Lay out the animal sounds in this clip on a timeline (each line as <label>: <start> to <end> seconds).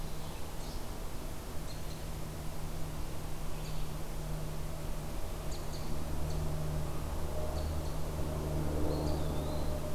Winter Wren (Troglodytes hiemalis): 5.3 to 8.1 seconds
Eastern Wood-Pewee (Contopus virens): 8.8 to 9.9 seconds